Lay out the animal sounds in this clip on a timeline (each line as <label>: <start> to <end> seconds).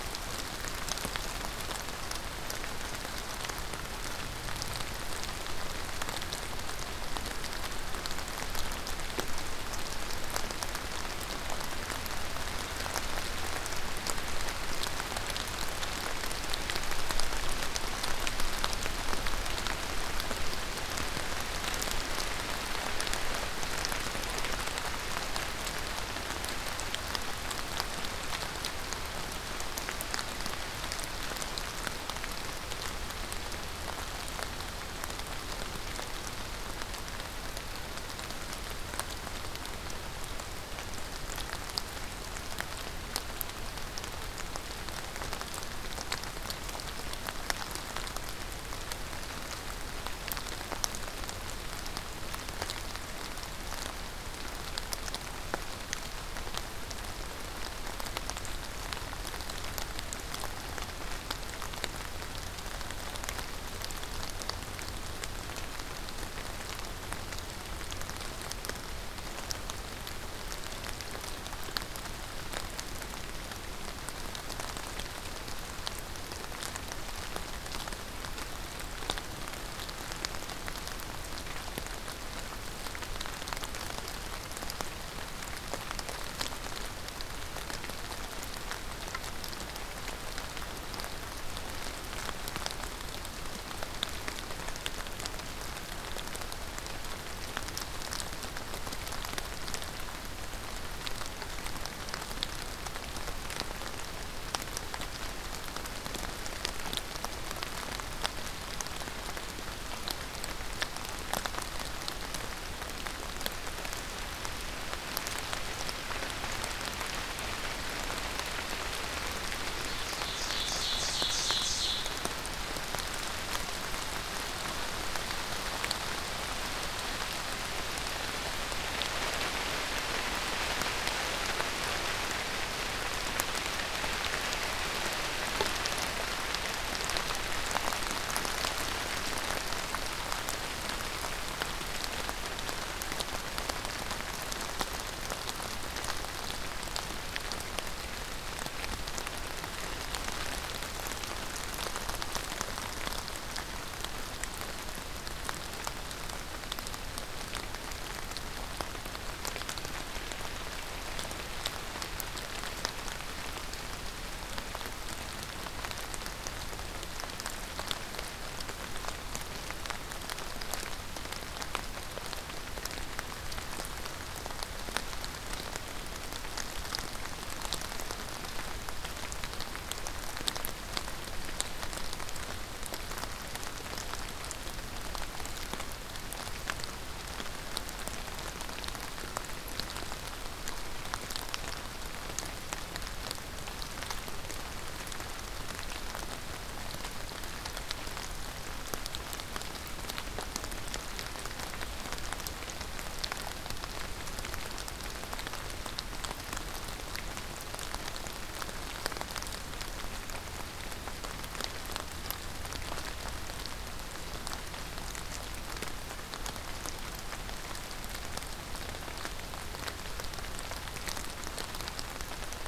Ovenbird (Seiurus aurocapilla): 120.1 to 122.1 seconds